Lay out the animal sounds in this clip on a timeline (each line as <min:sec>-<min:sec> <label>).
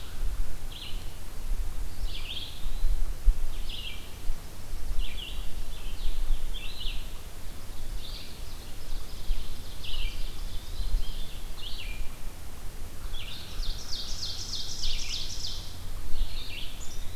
0:00.0-0:01.1 Red-eyed Vireo (Vireo olivaceus)
0:01.8-0:03.0 Eastern Wood-Pewee (Contopus virens)
0:01.8-0:17.2 Red-eyed Vireo (Vireo olivaceus)
0:07.3-0:11.4 Ovenbird (Seiurus aurocapilla)
0:09.2-0:11.4 Eastern Wood-Pewee (Contopus virens)
0:13.0-0:15.9 Ovenbird (Seiurus aurocapilla)
0:15.9-0:17.2 Eastern Wood-Pewee (Contopus virens)